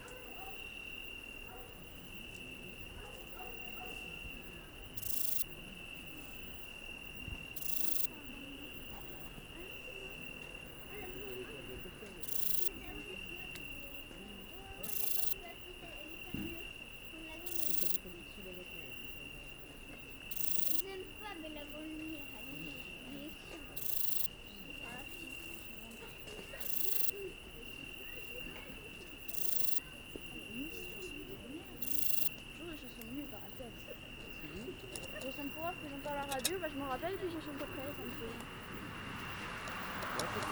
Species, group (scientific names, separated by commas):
Rhacocleis germanica, Orthoptera